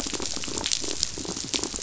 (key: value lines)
label: biophony, pulse
recorder: SoundTrap 500